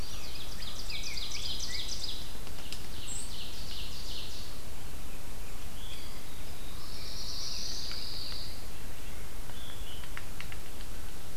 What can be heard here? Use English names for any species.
Rose-breasted Grosbeak, Ovenbird, White-throated Sparrow, Veery, Black-throated Blue Warbler, Pine Warbler, Yellow-bellied Sapsucker